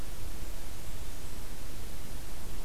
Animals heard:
forest ambience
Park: Marsh-Billings-Rockefeller National Historical Park